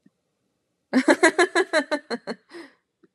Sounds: Laughter